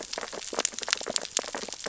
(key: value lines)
label: biophony, sea urchins (Echinidae)
recorder: SoundTrap 600 or HydroMoth